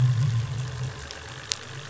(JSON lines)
{"label": "anthrophony, boat engine", "recorder": "SoundTrap 500"}